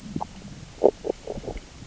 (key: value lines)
label: biophony, grazing
recorder: SoundTrap 600 or HydroMoth